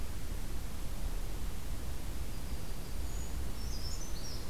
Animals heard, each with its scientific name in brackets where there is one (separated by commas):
Brown Creeper (Certhia americana), Yellow-rumped Warbler (Setophaga coronata)